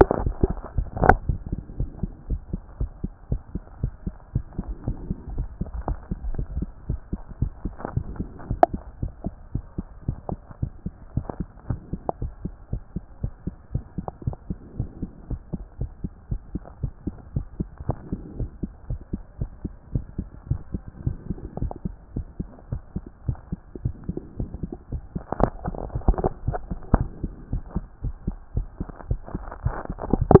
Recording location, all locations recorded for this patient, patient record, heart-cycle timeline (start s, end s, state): mitral valve (MV)
aortic valve (AV)+pulmonary valve (PV)+tricuspid valve (TV)+mitral valve (MV)
#Age: Adolescent
#Sex: Male
#Height: 143.0 cm
#Weight: 40.4 kg
#Pregnancy status: False
#Murmur: Absent
#Murmur locations: nan
#Most audible location: nan
#Systolic murmur timing: nan
#Systolic murmur shape: nan
#Systolic murmur grading: nan
#Systolic murmur pitch: nan
#Systolic murmur quality: nan
#Diastolic murmur timing: nan
#Diastolic murmur shape: nan
#Diastolic murmur grading: nan
#Diastolic murmur pitch: nan
#Diastolic murmur quality: nan
#Outcome: Normal
#Campaign: 2014 screening campaign
0.00	1.28	unannotated
1.28	1.38	S1
1.38	1.50	systole
1.50	1.58	S2
1.58	1.78	diastole
1.78	1.90	S1
1.90	2.02	systole
2.02	2.12	S2
2.12	2.30	diastole
2.30	2.40	S1
2.40	2.52	systole
2.52	2.62	S2
2.62	2.80	diastole
2.80	2.90	S1
2.90	3.02	systole
3.02	3.12	S2
3.12	3.30	diastole
3.30	3.42	S1
3.42	3.54	systole
3.54	3.62	S2
3.62	3.82	diastole
3.82	3.92	S1
3.92	4.04	systole
4.04	4.14	S2
4.14	4.34	diastole
4.34	4.44	S1
4.44	4.58	systole
4.58	4.68	S2
4.68	4.86	diastole
4.86	4.96	S1
4.96	5.08	systole
5.08	5.18	S2
5.18	5.34	diastole
5.34	5.48	S1
5.48	5.60	systole
5.60	5.68	S2
5.68	5.86	diastole
5.86	5.95	S1
5.95	6.10	systole
6.10	6.16	S2
6.16	6.31	diastole
6.31	6.43	S1
6.43	6.57	systole
6.57	6.68	S2
6.68	6.88	diastole
6.88	7.00	S1
7.00	7.12	systole
7.12	7.20	S2
7.20	7.40	diastole
7.40	7.52	S1
7.52	7.64	systole
7.64	7.74	S2
7.74	7.94	diastole
7.94	8.06	S1
8.06	8.18	systole
8.18	8.28	S2
8.28	8.48	diastole
8.48	8.60	S1
8.60	8.72	systole
8.72	8.82	S2
8.82	9.00	diastole
9.00	9.12	S1
9.12	9.24	systole
9.24	9.34	S2
9.34	9.54	diastole
9.54	9.64	S1
9.64	9.78	systole
9.78	9.86	S2
9.86	10.06	diastole
10.06	10.18	S1
10.18	10.30	systole
10.30	10.40	S2
10.40	10.60	diastole
10.60	10.72	S1
10.72	10.84	systole
10.84	10.94	S2
10.94	11.14	diastole
11.14	11.26	S1
11.26	11.38	systole
11.38	11.48	S2
11.48	11.68	diastole
11.68	11.80	S1
11.80	11.92	systole
11.92	12.00	S2
12.00	12.20	diastole
12.20	12.32	S1
12.32	12.44	systole
12.44	12.54	S2
12.54	12.72	diastole
12.72	12.82	S1
12.82	12.94	systole
12.94	13.04	S2
13.04	13.22	diastole
13.22	13.32	S1
13.32	13.46	systole
13.46	13.54	S2
13.54	13.72	diastole
13.72	13.84	S1
13.84	13.96	systole
13.96	14.06	S2
14.06	14.26	diastole
14.26	14.36	S1
14.36	14.48	systole
14.48	14.58	S2
14.58	14.78	diastole
14.78	14.88	S1
14.88	15.02	systole
15.02	15.10	S2
15.10	15.30	diastole
15.30	15.40	S1
15.40	15.52	systole
15.52	15.62	S2
15.62	15.80	diastole
15.80	15.90	S1
15.90	16.02	systole
16.02	16.12	S2
16.12	16.30	diastole
16.30	16.40	S1
16.40	16.52	systole
16.52	16.62	S2
16.62	16.82	diastole
16.82	16.92	S1
16.92	17.06	systole
17.06	17.14	S2
17.14	17.34	diastole
17.34	17.46	S1
17.46	17.58	systole
17.58	17.68	S2
17.68	17.88	diastole
17.88	17.98	S1
17.98	18.10	systole
18.10	18.20	S2
18.20	18.38	diastole
18.38	18.50	S1
18.50	18.62	systole
18.62	18.72	S2
18.72	18.90	diastole
18.90	19.00	S1
19.00	19.12	systole
19.12	19.22	S2
19.22	19.40	diastole
19.40	19.50	S1
19.50	19.64	systole
19.64	19.72	S2
19.72	19.92	diastole
19.92	20.04	S1
20.04	20.18	systole
20.18	20.28	S2
20.28	20.48	diastole
20.48	20.60	S1
20.60	20.72	systole
20.72	20.82	S2
20.82	21.04	diastole
21.04	21.16	S1
21.16	21.28	systole
21.28	21.38	S2
21.38	21.60	diastole
21.60	21.72	S1
21.72	21.84	systole
21.84	21.94	S2
21.94	22.14	diastole
22.14	22.26	S1
22.26	22.38	systole
22.38	22.48	S2
22.48	22.70	diastole
22.70	22.82	S1
22.82	22.94	systole
22.94	23.04	S2
23.04	23.26	diastole
23.26	23.38	S1
23.38	23.50	systole
23.50	23.60	S2
23.60	23.84	diastole
23.84	30.40	unannotated